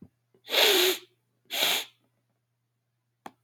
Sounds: Sniff